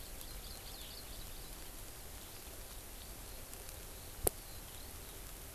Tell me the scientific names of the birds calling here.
Chlorodrepanis virens, Alauda arvensis